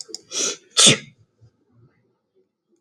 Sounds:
Sneeze